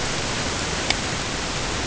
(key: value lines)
label: ambient
recorder: HydroMoth